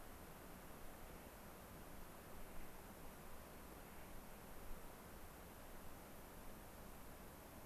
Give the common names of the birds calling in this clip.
Clark's Nutcracker